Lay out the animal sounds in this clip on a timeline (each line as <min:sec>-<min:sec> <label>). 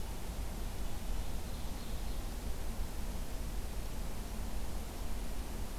0:00.0-0:01.4 Red-breasted Nuthatch (Sitta canadensis)
0:00.8-0:02.3 Ovenbird (Seiurus aurocapilla)